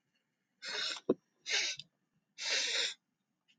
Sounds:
Sniff